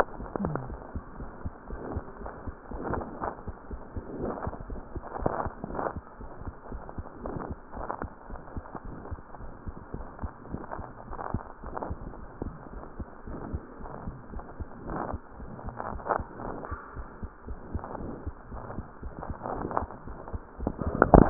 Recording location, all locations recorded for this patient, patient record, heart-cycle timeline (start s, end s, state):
mitral valve (MV)
aortic valve (AV)+pulmonary valve (PV)+tricuspid valve (TV)+mitral valve (MV)
#Age: Child
#Sex: Female
#Height: 80.0 cm
#Weight: 10.7 kg
#Pregnancy status: False
#Murmur: Absent
#Murmur locations: nan
#Most audible location: nan
#Systolic murmur timing: nan
#Systolic murmur shape: nan
#Systolic murmur grading: nan
#Systolic murmur pitch: nan
#Systolic murmur quality: nan
#Diastolic murmur timing: nan
#Diastolic murmur shape: nan
#Diastolic murmur grading: nan
#Diastolic murmur pitch: nan
#Diastolic murmur quality: nan
#Outcome: Abnormal
#Campaign: 2015 screening campaign
0.00	6.54	unannotated
6.54	6.70	diastole
6.70	6.80	S1
6.80	6.96	systole
6.96	7.06	S2
7.06	7.22	diastole
7.22	7.34	S1
7.34	7.48	systole
7.48	7.58	S2
7.58	7.74	diastole
7.74	7.84	S1
7.84	8.00	systole
8.00	8.10	S2
8.10	8.28	diastole
8.28	8.38	S1
8.38	8.54	systole
8.54	8.64	S2
8.64	8.82	diastole
8.82	8.94	S1
8.94	9.10	systole
9.10	9.22	S2
9.22	9.42	diastole
9.42	9.50	S1
9.50	9.68	systole
9.68	9.78	S2
9.78	9.94	diastole
9.94	10.06	S1
10.06	10.24	systole
10.24	10.34	S2
10.34	10.52	diastole
10.52	10.62	S1
10.62	10.80	systole
10.80	10.92	S2
10.92	11.08	diastole
11.08	11.16	S1
11.16	11.32	systole
11.32	11.42	S2
11.42	11.62	diastole
11.62	11.74	S1
11.74	11.88	systole
11.88	11.98	S2
11.98	12.18	diastole
12.18	12.28	S1
12.28	12.46	systole
12.46	12.58	S2
12.58	12.74	diastole
12.74	12.82	S1
12.82	12.98	systole
12.98	13.08	S2
13.08	13.28	diastole
13.28	13.36	S1
13.36	13.52	systole
13.52	13.62	S2
13.62	13.80	diastole
13.80	13.88	S1
13.88	14.06	systole
14.06	14.18	S2
14.18	14.32	diastole
14.32	14.42	S1
14.42	14.58	systole
14.58	14.68	S2
14.68	14.84	diastole
14.84	14.94	S1
14.94	15.10	systole
15.10	15.22	S2
15.22	15.38	diastole
15.38	15.50	S1
15.50	15.66	systole
15.66	15.78	S2
15.78	15.92	diastole
15.92	21.30	unannotated